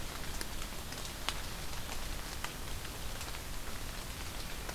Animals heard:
forest ambience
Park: Marsh-Billings-Rockefeller National Historical Park